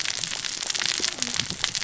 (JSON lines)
{"label": "biophony, cascading saw", "recorder": "SoundTrap 600 or HydroMoth"}